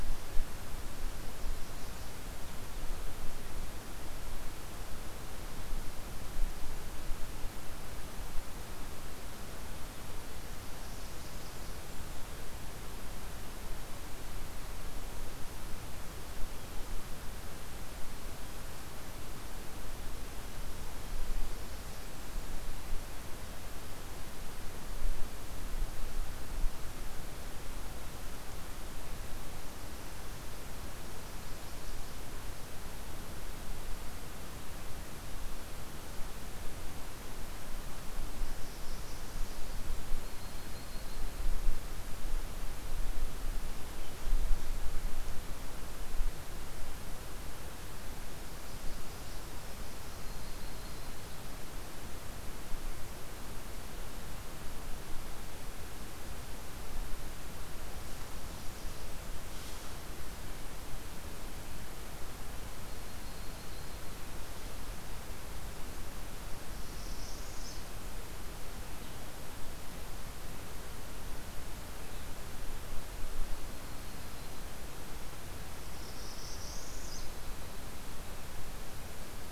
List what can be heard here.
Northern Parula, Yellow-rumped Warbler